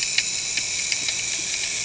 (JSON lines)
{"label": "anthrophony, boat engine", "recorder": "HydroMoth"}